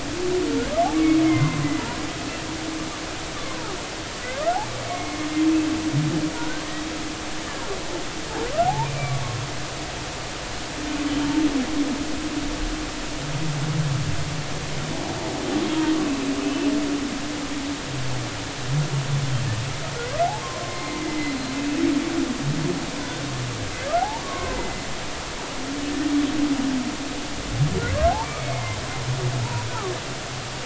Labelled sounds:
1.2	1.6	humpback whale, 0.96 to 2.2 kHz
3.4	3.7	humpback whale, 0.80 to 1.2 kHz
4.8	5.3	humpback whale, 2.1 to 2.3 kHz
6.4	6.7	humpback whale, 1.4 to 1.6 kHz
8.6	9.1	humpback whale, 0.80 to 2.5 kHz
11.1	11.3	humpback whale, 2.9 to 3.2 kHz
16.4	16.7	humpback whale, 2.6 to 2.7 kHz
20.7	21.4	humpback whale, 1.9 to 2.2 kHz
24.0	24.8	humpback whale, 0.80 to 2.1 kHz
28.1	28.8	humpback whale, 0.80 to 2.4 kHz
29.7	29.9	humpback whale, 1.1 to 1.5 kHz

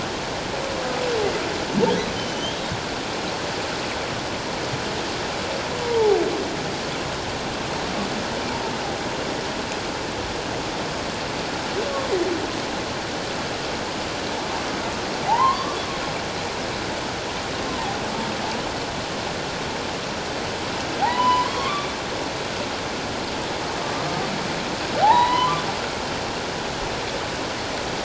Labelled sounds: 2.2	2.6	humpback whale, 2.9 to 3.3 kHz
5.8	6.2	humpback whale, 0.78 to 1.0 kHz
15.3	15.8	humpback whale, 0.78 to 1.2 kHz
21.0	22.0	humpback whale, 0.78 to 3.6 kHz
25.0	25.6	humpback whale, 0.78 to 4.1 kHz

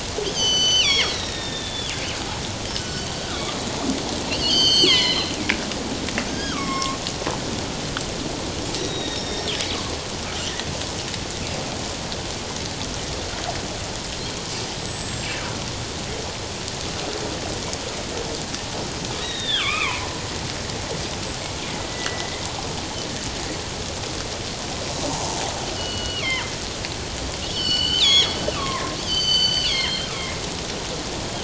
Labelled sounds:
0.3	1.9	killer whale, northern resident, G clan, 1.8 to 7.7 kHz
2.8	3.5	killer whale, northern resident, G clan, 1.1 to 7.7 kHz
4.3	5.3	killer whale, northern resident, G clan, 0.94 to 7.9 kHz
6.3	7.0	killer whale, northern resident, G clan, 0.94 to 6.6 kHz
8.8	9.5	killer whale, northern resident, G clan, 3.6 to 5.9 kHz
14.7	15.4	killer whale, northern resident, G clan, 7.4 to 8.0 kHz
19.2	20.2	killer whale, northern resident, G clan, 0.78 to 3.9 kHz
21.0	21.4	killer whale, northern resident, G clan, 7.6 to 8.0 kHz
21.9	22.4	killer whale, northern resident, G clan, 1.9 to 2.1 kHz
25.1	26.3	killer whale, northern resident, G clan, 0.78 to 4.5 kHz
27.4	30.1	killer whale, northern resident, G clan, 0.94 to 7.6 kHz

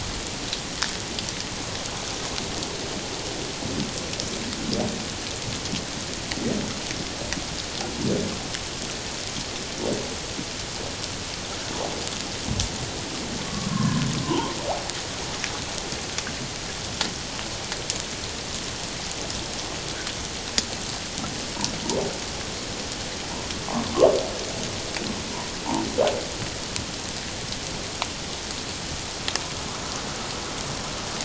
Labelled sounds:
13.4	14.6	humpback whale, 0.84 to 1.2 kHz

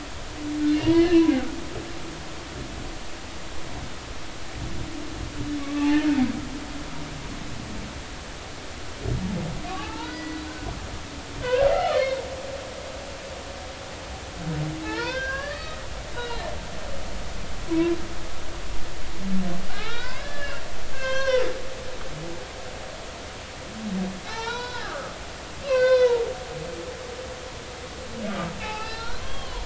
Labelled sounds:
0.7	1.3	humpback whale, 1.6 to 3.1 kHz
5.6	5.9	humpback whale, 1.1 to 1.2 kHz
9.7	10.4	humpback whale, 0.80 to 2.9 kHz
11.4	12.0	humpback whale, 1.1 to 1.7 kHz
14.8	16.4	humpback whale, 0.80 to 4.6 kHz
17.7	18.0	humpback whale, 0.93 to 1.1 kHz
19.7	21.4	humpback whale, 0.80 to 6.5 kHz
24.3	25.1	humpback whale, 0.83 to 5.6 kHz
25.6	26.2	humpback whale, 0.86 to 5.2 kHz
28.6	29.6	humpback whale, 0.80 to 4.3 kHz

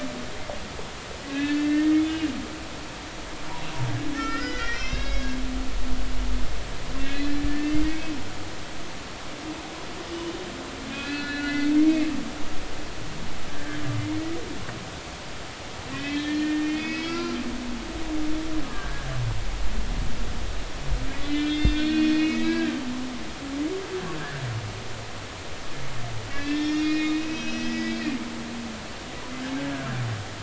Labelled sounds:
1.3	2.2	humpback whale, 1.6 to 3.6 kHz
4.1	5.6	humpback whale, 1.3 to 6.0 kHz
7.1	8.1	humpback whale, 1.7 to 2.6 kHz
10.9	11.7	humpback whale, 1.4 to 4.1 kHz
13.5	13.8	humpback whale, 1.5 to 1.9 kHz
15.9	17.4	humpback whale, 0.99 to 4.9 kHz
18.6	19.1	humpback whale, 1.1 to 1.7 kHz
21.1	22.8	humpback whale, 1.5 to 4.4 kHz
26.3	28.0	humpback whale, 1.6 to 5.9 kHz

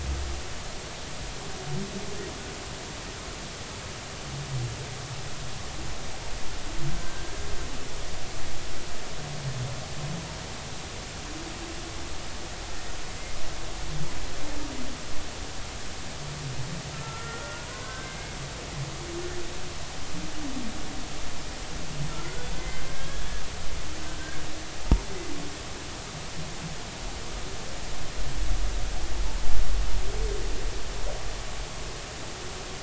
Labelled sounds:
6.9	7.4	humpback whale, 1.5 to 1.7 kHz
16.9	18.4	humpback whale, 0.93 to 2.2 kHz
22.1	23.2	humpback whale, 1.3 to 2.1 kHz

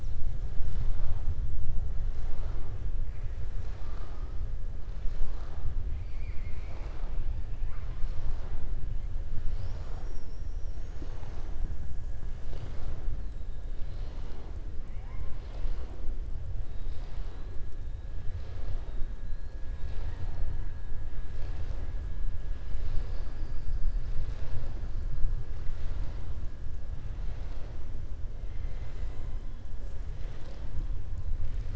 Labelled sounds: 28.5	29.2	killer whale, southern resident, 1.2 to 3.8 kHz

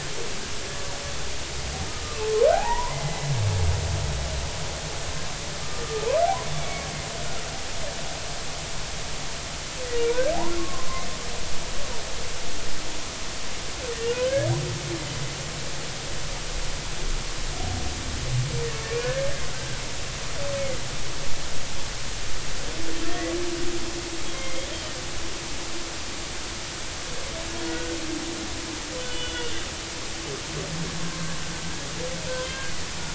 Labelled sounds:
2.0	3.3	humpback whale, 0.80 to 2.1 kHz
6.6	6.9	humpback whale, 2.1 to 2.3 kHz
10.0	10.9	humpback whale, 0.99 to 1.6 kHz
14.1	14.5	humpback whale, 1.4 to 1.8 kHz
18.9	19.8	humpback whale, 1.4 to 1.9 kHz
23.0	23.3	humpback whale, 1.8 to 2.0 kHz
24.3	24.7	humpback whale, 2.0 to 2.2 kHz
27.7	28.0	humpback whale, 1.4 to 1.5 kHz
29.0	29.5	humpback whale, 2.8 to 3.5 kHz
31.1	31.3	humpback whale, 0.99 to 1.2 kHz
32.3	32.7	humpback whale, 1.5 to 1.7 kHz

